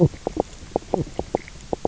{"label": "biophony, knock croak", "recorder": "SoundTrap 300"}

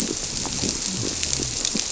{"label": "biophony", "recorder": "SoundTrap 300"}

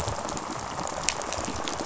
{"label": "biophony, rattle response", "recorder": "SoundTrap 500"}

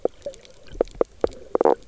{"label": "biophony, knock croak", "recorder": "SoundTrap 300"}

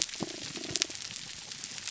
{"label": "biophony, damselfish", "recorder": "SoundTrap 300"}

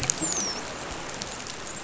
{"label": "biophony, dolphin", "recorder": "SoundTrap 500"}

